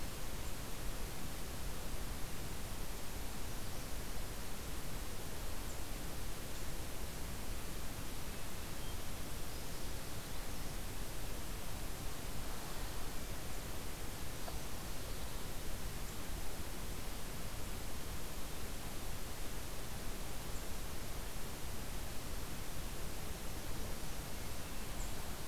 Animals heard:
forest ambience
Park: Katahdin Woods and Waters National Monument